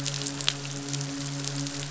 {"label": "biophony, midshipman", "recorder": "SoundTrap 500"}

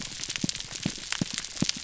{"label": "biophony, pulse", "recorder": "SoundTrap 300"}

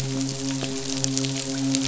{"label": "biophony, midshipman", "recorder": "SoundTrap 500"}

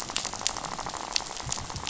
{"label": "biophony, rattle", "recorder": "SoundTrap 500"}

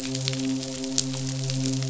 {"label": "biophony, midshipman", "recorder": "SoundTrap 500"}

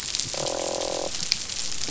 {"label": "biophony, croak", "recorder": "SoundTrap 500"}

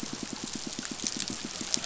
{"label": "biophony, pulse", "recorder": "SoundTrap 500"}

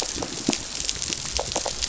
{"label": "biophony", "recorder": "SoundTrap 500"}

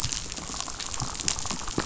{"label": "biophony, damselfish", "recorder": "SoundTrap 500"}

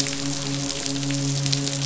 {"label": "biophony, midshipman", "recorder": "SoundTrap 500"}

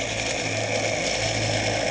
{"label": "anthrophony, boat engine", "recorder": "HydroMoth"}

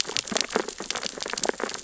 {"label": "biophony, sea urchins (Echinidae)", "recorder": "SoundTrap 600 or HydroMoth"}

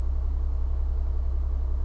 {"label": "anthrophony, boat engine", "recorder": "SoundTrap 300"}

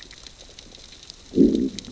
{"label": "biophony, growl", "recorder": "SoundTrap 600 or HydroMoth"}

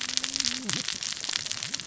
{"label": "biophony, cascading saw", "recorder": "SoundTrap 600 or HydroMoth"}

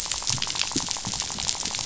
{"label": "biophony, rattle", "recorder": "SoundTrap 500"}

